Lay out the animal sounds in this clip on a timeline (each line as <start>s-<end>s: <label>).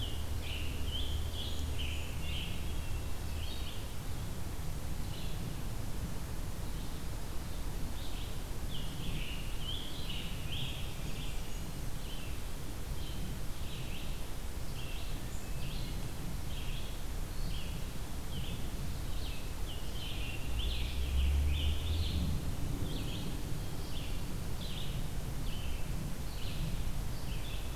0.0s-2.6s: Scarlet Tanager (Piranga olivacea)
0.0s-27.8s: Red-eyed Vireo (Vireo olivaceus)
0.9s-2.4s: Blackburnian Warbler (Setophaga fusca)
2.3s-3.2s: Hermit Thrush (Catharus guttatus)
8.6s-11.0s: Scarlet Tanager (Piranga olivacea)
10.5s-11.9s: Blackburnian Warbler (Setophaga fusca)
15.1s-16.2s: Hermit Thrush (Catharus guttatus)
19.6s-22.3s: Scarlet Tanager (Piranga olivacea)